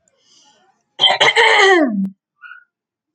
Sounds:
Throat clearing